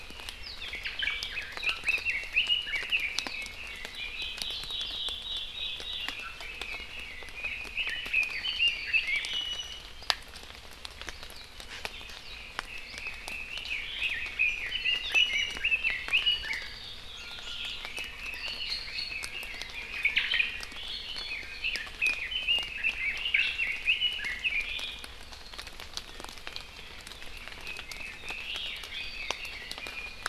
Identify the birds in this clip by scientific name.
Myadestes obscurus, Leiothrix lutea, Drepanis coccinea